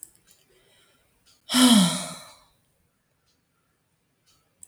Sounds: Sigh